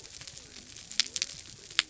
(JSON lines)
{"label": "biophony", "recorder": "SoundTrap 300"}